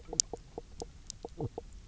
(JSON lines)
{"label": "biophony, knock croak", "recorder": "SoundTrap 300"}